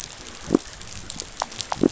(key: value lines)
label: biophony
recorder: SoundTrap 500